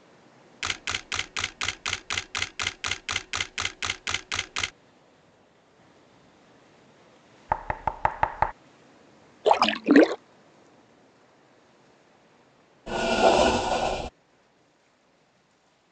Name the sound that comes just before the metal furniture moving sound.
splash